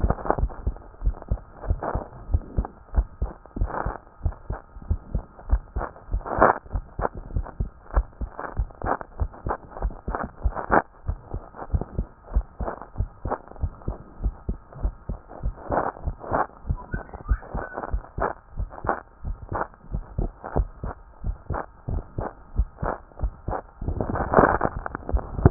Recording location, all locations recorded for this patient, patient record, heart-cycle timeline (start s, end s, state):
pulmonary valve (PV)
aortic valve (AV)+pulmonary valve (PV)+tricuspid valve (TV)+mitral valve (MV)
#Age: Child
#Sex: Male
#Height: 129.0 cm
#Weight: 24.6 kg
#Pregnancy status: False
#Murmur: Absent
#Murmur locations: nan
#Most audible location: nan
#Systolic murmur timing: nan
#Systolic murmur shape: nan
#Systolic murmur grading: nan
#Systolic murmur pitch: nan
#Systolic murmur quality: nan
#Diastolic murmur timing: nan
#Diastolic murmur shape: nan
#Diastolic murmur grading: nan
#Diastolic murmur pitch: nan
#Diastolic murmur quality: nan
#Outcome: Abnormal
#Campaign: 2014 screening campaign
0.00	0.38	unannotated
0.38	0.50	S1
0.50	0.66	systole
0.66	0.76	S2
0.76	1.02	diastole
1.02	1.16	S1
1.16	1.30	systole
1.30	1.40	S2
1.40	1.68	diastole
1.68	1.80	S1
1.80	1.94	systole
1.94	2.02	S2
2.02	2.30	diastole
2.30	2.42	S1
2.42	2.56	systole
2.56	2.66	S2
2.66	2.94	diastole
2.94	3.06	S1
3.06	3.20	systole
3.20	3.30	S2
3.30	3.58	diastole
3.58	3.70	S1
3.70	3.84	systole
3.84	3.94	S2
3.94	4.24	diastole
4.24	4.34	S1
4.34	4.50	systole
4.50	4.58	S2
4.58	4.88	diastole
4.88	5.00	S1
5.00	5.14	systole
5.14	5.24	S2
5.24	5.50	diastole
5.50	5.62	S1
5.62	5.76	systole
5.76	5.84	S2
5.84	6.12	diastole
6.12	6.24	S1
6.24	6.38	systole
6.38	6.52	S2
6.52	6.74	diastole
6.74	6.84	S1
6.84	6.98	systole
6.98	7.08	S2
7.08	7.34	diastole
7.34	7.46	S1
7.46	7.60	systole
7.60	7.70	S2
7.70	7.94	diastole
7.94	8.06	S1
8.06	8.20	systole
8.20	8.30	S2
8.30	8.56	diastole
8.56	8.68	S1
8.68	8.84	systole
8.84	8.94	S2
8.94	9.20	diastole
9.20	9.30	S1
9.30	9.46	systole
9.46	9.54	S2
9.54	9.82	diastole
9.82	9.94	S1
9.94	10.08	systole
10.08	10.16	S2
10.16	10.44	diastole
10.44	10.54	S1
10.54	10.70	systole
10.70	10.82	S2
10.82	11.08	diastole
11.08	11.18	S1
11.18	11.32	systole
11.32	11.42	S2
11.42	11.72	diastole
11.72	11.84	S1
11.84	11.96	systole
11.96	12.06	S2
12.06	12.34	diastole
12.34	12.46	S1
12.46	12.60	systole
12.60	12.70	S2
12.70	12.98	diastole
12.98	13.10	S1
13.10	13.26	systole
13.26	13.34	S2
13.34	13.62	diastole
13.62	13.72	S1
13.72	13.86	systole
13.86	13.96	S2
13.96	14.22	diastole
14.22	14.34	S1
14.34	14.48	systole
14.48	14.58	S2
14.58	14.82	diastole
14.82	14.94	S1
14.94	15.08	systole
15.08	15.18	S2
15.18	15.44	diastole
15.44	25.50	unannotated